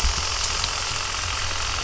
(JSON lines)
{"label": "anthrophony, boat engine", "recorder": "SoundTrap 300"}